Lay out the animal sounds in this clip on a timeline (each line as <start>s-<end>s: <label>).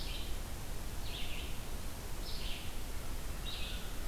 0.0s-4.1s: Red-eyed Vireo (Vireo olivaceus)
3.4s-4.1s: American Crow (Corvus brachyrhynchos)